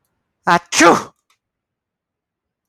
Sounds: Sneeze